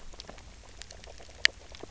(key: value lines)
label: biophony, grazing
recorder: SoundTrap 300